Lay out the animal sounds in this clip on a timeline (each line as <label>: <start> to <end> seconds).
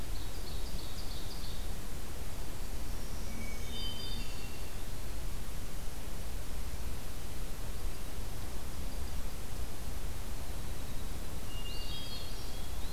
Ovenbird (Seiurus aurocapilla): 0.0 to 1.8 seconds
Black-throated Green Warbler (Setophaga virens): 2.8 to 4.6 seconds
Hermit Thrush (Catharus guttatus): 3.2 to 4.8 seconds
Hermit Thrush (Catharus guttatus): 11.3 to 12.9 seconds
Eastern Wood-Pewee (Contopus virens): 11.5 to 12.9 seconds